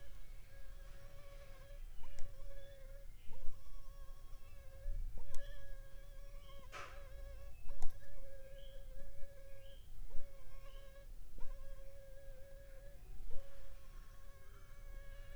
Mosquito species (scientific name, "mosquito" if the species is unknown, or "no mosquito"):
Anopheles funestus s.l.